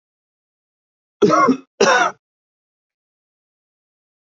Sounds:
Cough